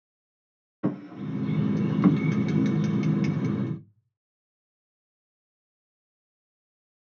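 At 0.83 seconds, a wooden drawer closes. While that goes on, at 1.1 seconds, a bird can be heard.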